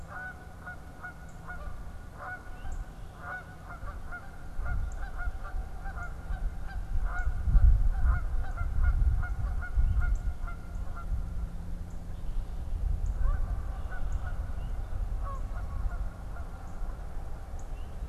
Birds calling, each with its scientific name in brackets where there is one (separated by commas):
Song Sparrow (Melospiza melodia), Northern Cardinal (Cardinalis cardinalis)